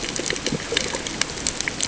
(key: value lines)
label: ambient
recorder: HydroMoth